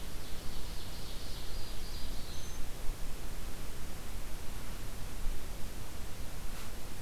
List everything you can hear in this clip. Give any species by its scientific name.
Seiurus aurocapilla, Setophaga virens